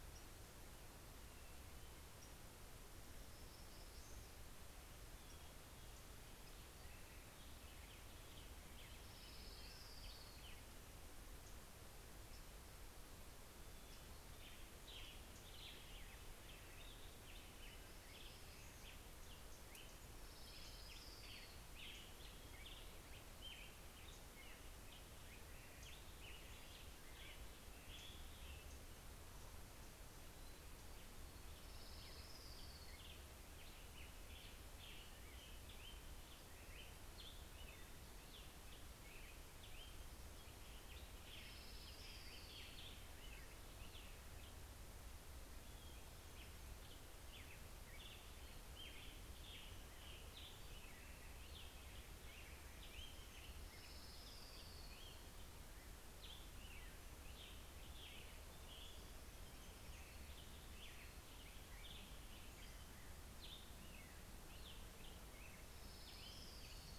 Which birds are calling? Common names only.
Hermit Warbler, American Robin, Orange-crowned Warbler, Western Tanager